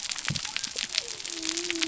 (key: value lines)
label: biophony
recorder: SoundTrap 300